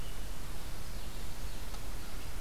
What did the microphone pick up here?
Common Yellowthroat